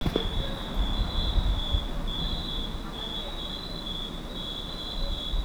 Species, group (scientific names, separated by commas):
Oecanthus pellucens, Orthoptera